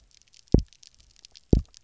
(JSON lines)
{"label": "biophony, double pulse", "recorder": "SoundTrap 300"}